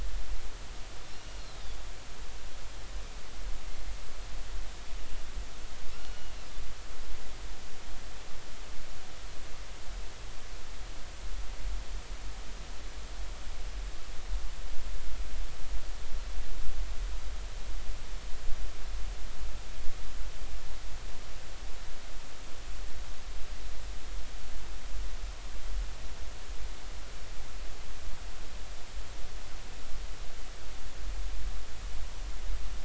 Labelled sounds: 1.1	1.5	Pacific white-sided dolphin, 2.8 to 2.9 kHz
5.9	6.5	Pacific white-sided dolphin, 1.3 to 4.4 kHz

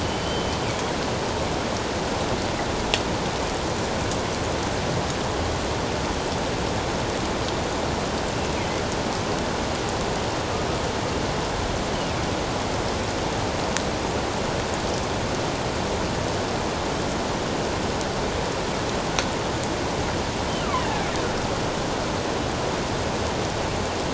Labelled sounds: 0.0	0.6	killer whale, northern resident, G clan, 2.9 to 3.2 kHz
20.7	21.1	killer whale, northern resident, G clan, 1.5 to 2.3 kHz

